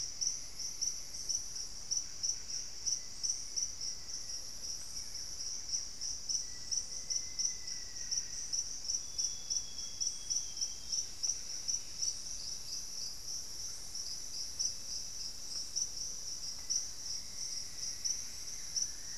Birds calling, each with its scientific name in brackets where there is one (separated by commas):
Black-faced Antthrush (Formicarius analis), Buff-breasted Wren (Cantorchilus leucotis), Thrush-like Wren (Campylorhynchus turdinus), Plumbeous Antbird (Myrmelastes hyperythrus), Cinnamon-throated Woodcreeper (Dendrexetastes rufigula), Amazonian Grosbeak (Cyanoloxia rothschildii)